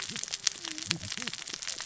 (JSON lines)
{"label": "biophony, cascading saw", "recorder": "SoundTrap 600 or HydroMoth"}